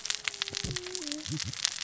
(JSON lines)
{"label": "biophony, cascading saw", "recorder": "SoundTrap 600 or HydroMoth"}